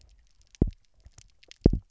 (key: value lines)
label: biophony, double pulse
recorder: SoundTrap 300